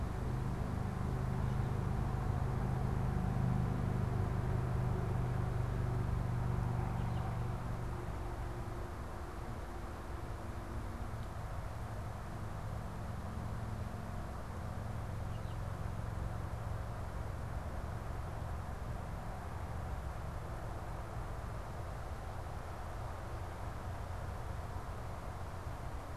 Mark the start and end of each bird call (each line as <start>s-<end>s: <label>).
6.9s-7.5s: American Goldfinch (Spinus tristis)
15.0s-15.7s: American Goldfinch (Spinus tristis)